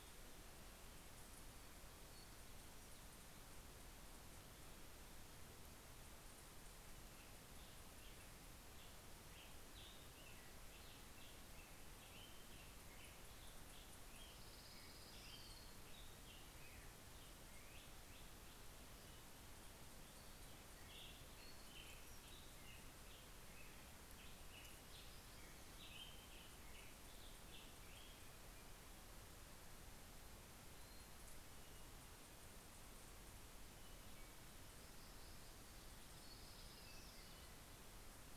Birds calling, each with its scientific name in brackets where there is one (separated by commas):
Orange-crowned Warbler (Leiothlypis celata), MacGillivray's Warbler (Geothlypis tolmiei), Black-headed Grosbeak (Pheucticus melanocephalus)